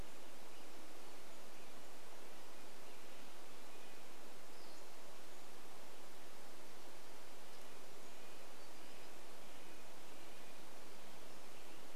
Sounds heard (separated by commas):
Red-breasted Nuthatch song, warbler song, Pacific-slope Flycatcher call, Western Tanager song